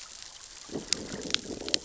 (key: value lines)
label: biophony, growl
recorder: SoundTrap 600 or HydroMoth